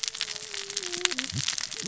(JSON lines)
{"label": "biophony, cascading saw", "recorder": "SoundTrap 600 or HydroMoth"}